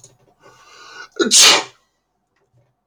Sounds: Sneeze